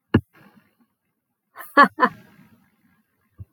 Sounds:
Laughter